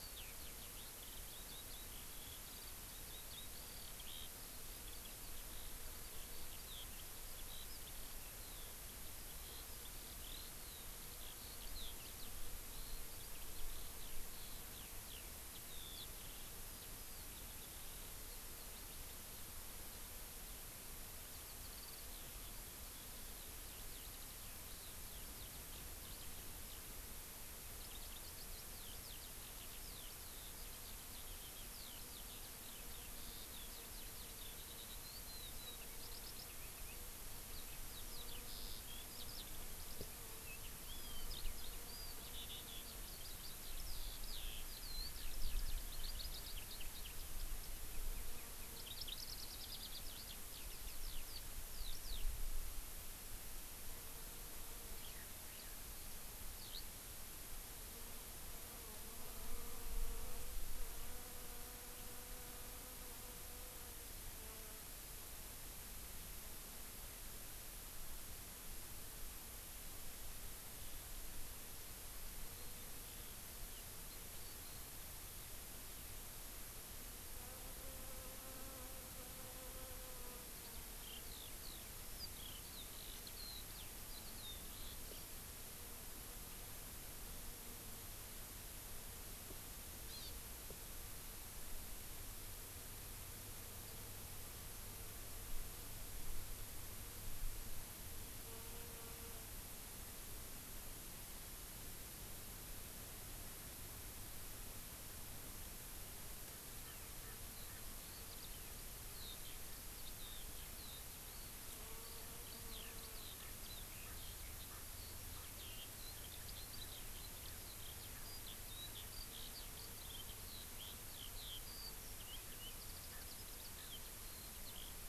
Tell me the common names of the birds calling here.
Eurasian Skylark, Warbling White-eye, Hawaii Amakihi